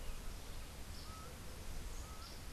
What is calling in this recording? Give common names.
Laughing Falcon, Yellow Warbler